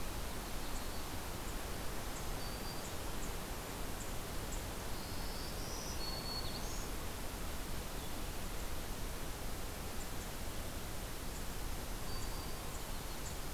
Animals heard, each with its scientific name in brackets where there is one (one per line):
Black-throated Green Warbler (Setophaga virens)
Yellow-rumped Warbler (Setophaga coronata)